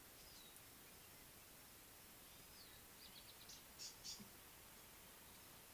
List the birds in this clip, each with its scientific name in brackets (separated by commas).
Tawny-flanked Prinia (Prinia subflava), Speckled Mousebird (Colius striatus)